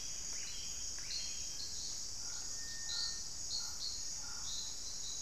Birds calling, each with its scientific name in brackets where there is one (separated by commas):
Buff-breasted Wren (Cantorchilus leucotis)